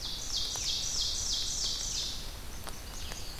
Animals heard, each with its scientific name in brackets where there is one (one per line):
Red-eyed Vireo (Vireo olivaceus)
Blackburnian Warbler (Setophaga fusca)
Ovenbird (Seiurus aurocapilla)
Eastern Wood-Pewee (Contopus virens)